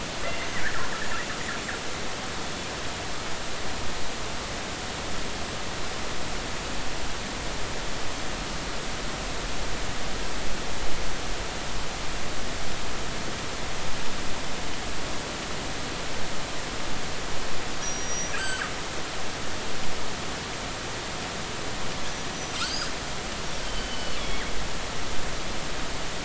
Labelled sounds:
17.8	18.7	killer whale, northern resident, G clan, call N23i, 1.4 to 7.9 kHz
22.6	22.9	killer whale, northern resident, G clan, call N23i, 4.1 to 5.1 kHz
23.6	24.4	killer whale, northern resident, G clan, GG subclan, call N23ii, 2.9 to 4.6 kHz

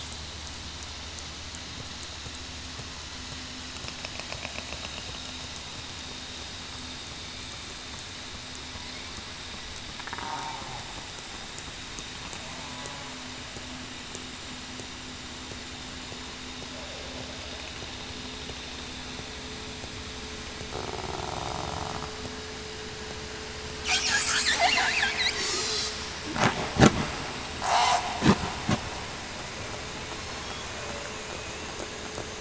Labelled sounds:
24.5	24.8	killer whale, southern resident, 1.7 to 2.2 kHz
27.7	28.1	killer whale, southern resident, 0.66 to 0.84 kHz
30.1	30.6	killer whale, southern resident, 5.3 to 5.6 kHz

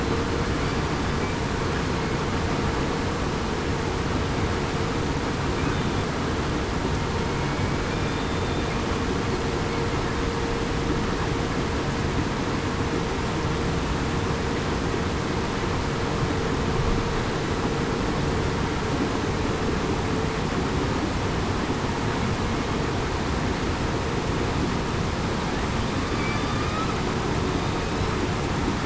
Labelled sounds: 8.1	8.7	killer whale, southern resident, 3.5 to 3.6 kHz

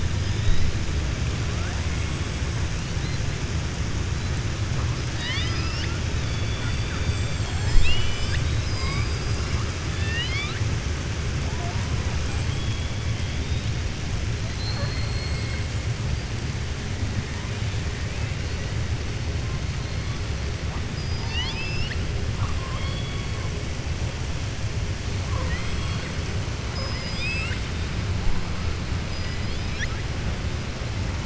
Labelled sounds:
5.1	6.0	killer whale, southern resident, 0.99 to 5.5 kHz
7.0	8.4	killer whale, southern resident, 7.2 to 7.9 kHz
9.9	10.6	killer whale, southern resident, 1.2 to 5.2 kHz
12.4	12.9	killer whale, southern resident, 3.1 to 3.5 kHz
14.5	15.6	killer whale, southern resident, 4.0 to 4.9 kHz
20.9	22.0	killer whale, southern resident, 0.80 to 5.8 kHz
25.2	26.1	killer whale, southern resident, 0.50 to 4.2 kHz
26.6	27.8	killer whale, southern resident, 0.58 to 7.8 kHz
29.0	30.0	killer whale, southern resident, 1.3 to 6.7 kHz

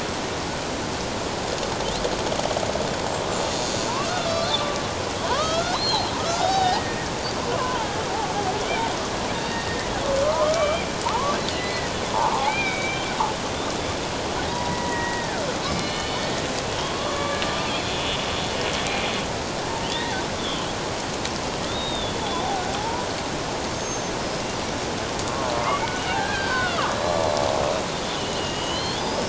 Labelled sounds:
4.5	7.0	killer whale, Bigg's (transient), 0.78 to 4.3 kHz
7.5	7.9	killer whale, Bigg's (transient), 0.81 to 1.7 kHz
9.3	9.9	killer whale, Bigg's (transient), 1.8 to 4.7 kHz
10.2	10.9	killer whale, Bigg's (transient), 0.84 to 3.2 kHz
11.5	13.0	killer whale, Bigg's (transient), 0.78 to 3.9 kHz
14.5	15.4	killer whale, Bigg's (transient), 0.91 to 2.1 kHz
15.7	17.4	killer whale, Bigg's (transient), 1.1 to 4.3 kHz
21.7	23.1	killer whale, Bigg's (transient), 0.78 to 3.8 kHz
23.7	24.1	killer whale, Bigg's (transient), 6.2 to 6.5 kHz
25.6	27.2	killer whale, Bigg's (transient), 0.91 to 4.8 kHz
28.2	29.2	killer whale, Bigg's (transient), 2.8 to 5.2 kHz

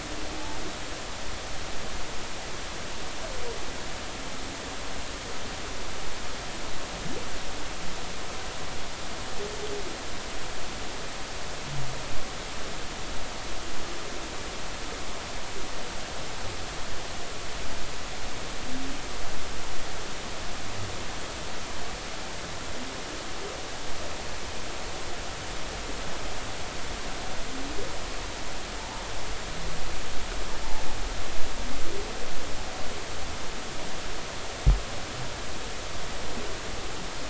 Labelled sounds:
0.3	0.6	humpback whale, 0.80 to 0.93 kHz
28.8	29.0	humpback whale, 0.80 to 1.0 kHz

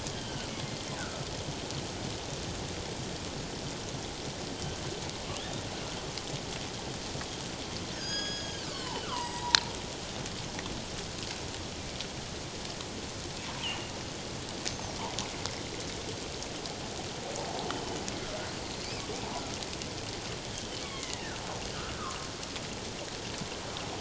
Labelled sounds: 0.1	1.2	killer whale, northern resident, G clan, 1.2 to 3.2 kHz
5.4	5.6	killer whale, northern resident, G clan, 3.1 to 3.8 kHz
7.9	9.6	killer whale, northern resident, G clan, 0.78 to 7.8 kHz
13.6	13.9	killer whale, northern resident, G clan, 2.7 to 3.2 kHz
18.5	18.9	killer whale, northern resident, G clan, 4.1 to 4.5 kHz
20.5	21.4	killer whale, northern resident, G clan, 0.94 to 3.3 kHz
21.9	22.2	killer whale, northern resident, G clan, 1.0 to 1.4 kHz

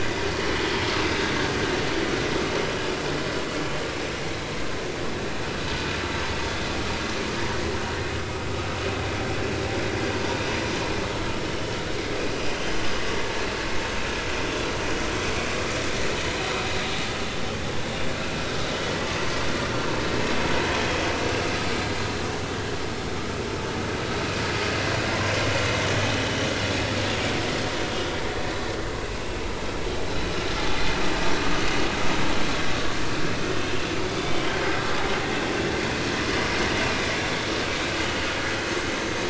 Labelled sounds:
34.3	34.6	vessel noise, 3.0 to 3.3 kHz

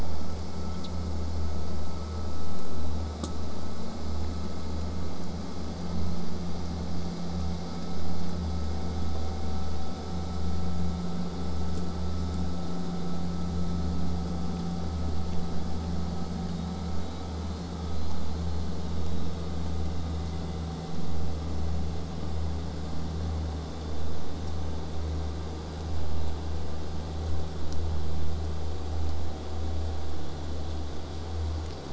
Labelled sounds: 16.0	19.3	killer whale, southern resident, J pod, whistle, 3.6 to 4.7 kHz

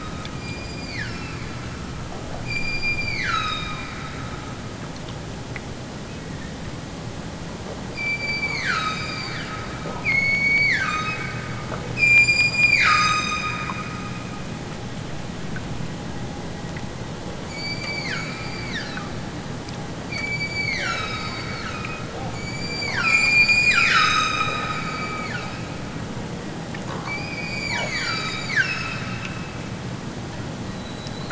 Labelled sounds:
0.3	1.5	killer whale, southern Alaska resident, 0.96 to 8.0 kHz
2.4	3.9	killer whale, southern Alaska resident, 0.96 to 8.0 kHz
7.9	9.8	killer whale, southern Alaska resident, 0.78 to 8.0 kHz
10.0	11.3	killer whale, southern Alaska resident, 0.73 to 8.0 kHz
12.0	13.9	killer whale, southern Alaska resident, 0.96 to 8.0 kHz
17.4	19.2	killer whale, southern Alaska resident, 0.87 to 8.0 kHz
20.1	25.7	killer whale, southern Alaska resident, 0.83 to 8.0 kHz
27.0	29.3	killer whale, southern Alaska resident, 0.73 to 8.0 kHz

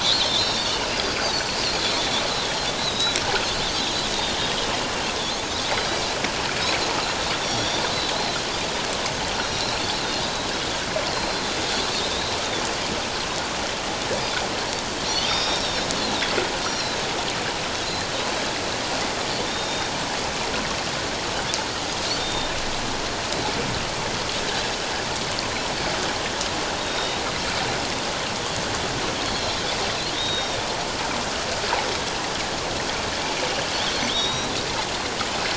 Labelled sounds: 0.0	1.3	Pacific white-sided dolphin, 3.4 to 5.6 kHz
2.0	3.2	Pacific white-sided dolphin, 3.3 to 4.2 kHz
4.4	4.7	Pacific white-sided dolphin, 3.2 to 3.4 kHz
7.4	7.8	Pacific white-sided dolphin, 3.3 to 5.8 kHz
8.1	8.4	Pacific white-sided dolphin, 3.8 to 4.2 kHz
9.4	9.8	Pacific white-sided dolphin, 3.8 to 5.7 kHz
10.2	10.5	Pacific white-sided dolphin, 3.8 to 4.0 kHz
11.1	12.4	Pacific white-sided dolphin, 3.5 to 4.2 kHz
15.1	15.9	Pacific white-sided dolphin, 3.4 to 5.6 kHz
16.6	17.0	Pacific white-sided dolphin, 3.9 to 4.3 kHz
19.4	19.9	Pacific white-sided dolphin, 3.4 to 3.8 kHz
22.2	22.5	Pacific white-sided dolphin, 3.6 to 3.8 kHz
26.8	27.2	Pacific white-sided dolphin, 3.6 to 3.8 kHz
29.3	29.6	Pacific white-sided dolphin, 4.1 to 4.2 kHz
30.1	30.6	Pacific white-sided dolphin, 3.6 to 5.7 kHz
34.1	34.5	Pacific white-sided dolphin, 3.1 to 5.8 kHz

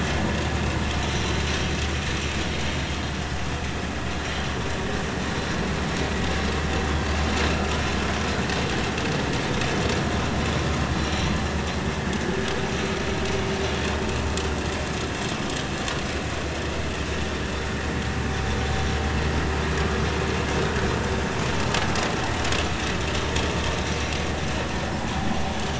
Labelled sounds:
1.1	1.4	vessel noise, 3.8 to 4.2 kHz
10.3	10.5	vessel noise, 4.0 to 4.2 kHz
11.0	11.4	vessel noise, 3.9 to 4.2 kHz

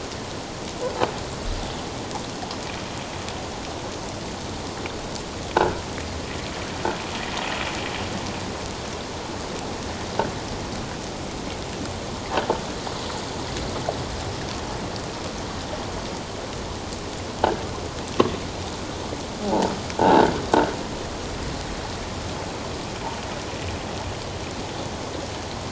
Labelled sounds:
5.6	5.8	croaking sound likely from a nearby submerged object, 1.3 to 1.7 kHz
20.0	20.3	croaking sound likely from a nearby submerged object, 0.78 to 1.7 kHz

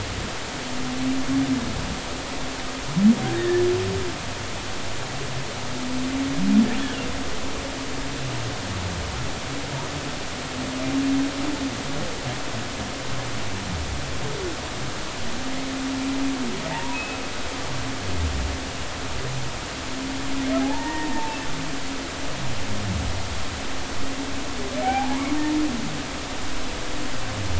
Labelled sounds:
3.4	3.6	humpback whale, 1.7 to 1.9 kHz
16.7	17.2	humpback whale, 0.80 to 2.7 kHz
20.6	21.1	humpback whale, 0.80 to 1.9 kHz
24.8	25.3	humpback whale, 0.80 to 1.2 kHz

